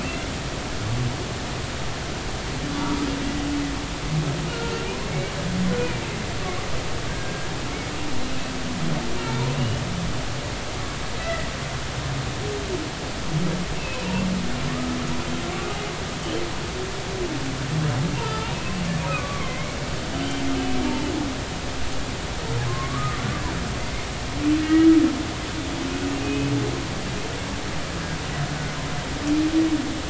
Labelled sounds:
0.1	0.3	humpback whale, 1.9 to 2.2 kHz
4.5	6.1	humpback whale, 1.3 to 2.5 kHz
7.1	7.5	humpback whale, 1.5 to 1.7 kHz
9.2	9.8	humpback whale, 2.2 to 3.0 kHz
11.2	11.5	humpback whale, 1.9 to 2.1 kHz
13.8	14.1	humpback whale, 2.5 to 2.8 kHz
16.2	16.4	humpback whale, 2.8 to 3.2 kHz
18.2	19.8	humpback whale, 1.0 to 2.3 kHz
22.7	23.2	humpback whale, 0.99 to 1.3 kHz
24.6	24.9	humpback whale, 1.9 to 2.9 kHz
26.2	26.5	humpback whale, 2.5 to 2.6 kHz

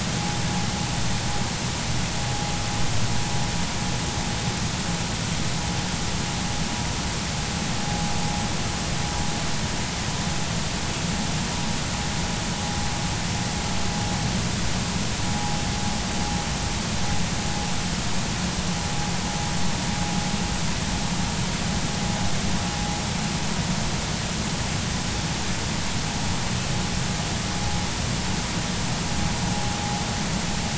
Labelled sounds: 15.3	15.6	vessel noise, 0.80 to 0.99 kHz

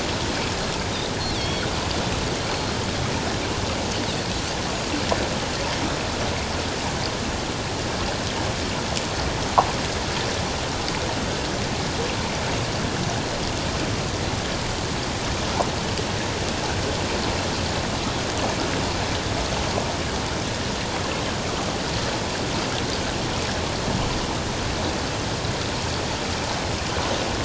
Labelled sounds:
1.2	1.7	Pacific white-sided dolphin, 2.1 to 5.7 kHz

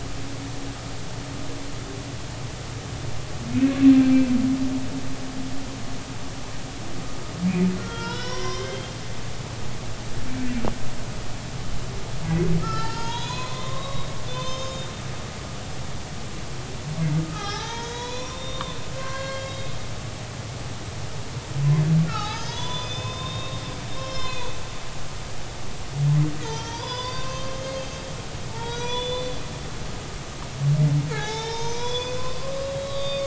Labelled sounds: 3.9	4.3	humpback whale, 2.3 to 2.4 kHz
7.8	8.9	humpback whale, 0.90 to 5.9 kHz
12.6	14.9	humpback whale, 0.83 to 6.9 kHz
17.2	19.7	humpback whale, 0.80 to 6.8 kHz
22.1	24.5	humpback whale, 0.80 to 6.1 kHz
26.4	27.6	humpback whale, 0.83 to 6.2 kHz
28.5	29.4	humpback whale, 0.83 to 5.9 kHz
31.1	33.2	humpback whale, 0.80 to 6.2 kHz

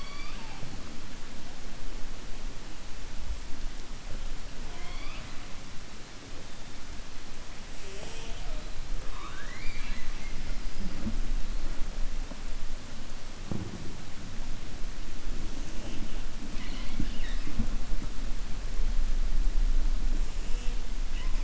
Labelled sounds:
9.0	10.4	killer whale, 0.96 to 4.8 kHz

